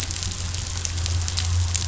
{"label": "anthrophony, boat engine", "recorder": "SoundTrap 500"}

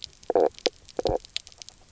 {"label": "biophony, knock croak", "recorder": "SoundTrap 300"}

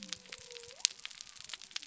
{"label": "biophony", "recorder": "SoundTrap 300"}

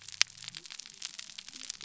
{"label": "biophony", "recorder": "SoundTrap 300"}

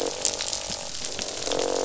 {"label": "biophony, croak", "recorder": "SoundTrap 500"}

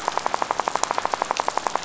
{"label": "biophony, rattle", "recorder": "SoundTrap 500"}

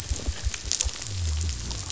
{"label": "biophony", "recorder": "SoundTrap 500"}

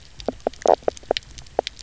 {"label": "biophony, knock croak", "recorder": "SoundTrap 300"}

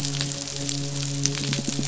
{"label": "biophony, midshipman", "recorder": "SoundTrap 500"}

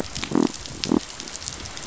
{"label": "biophony", "recorder": "SoundTrap 500"}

